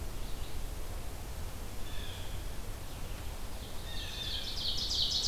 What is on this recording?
Red-eyed Vireo, Blue Jay, Ovenbird